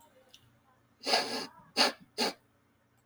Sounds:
Sniff